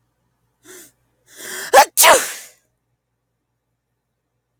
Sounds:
Sneeze